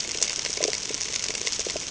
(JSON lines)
{"label": "ambient", "recorder": "HydroMoth"}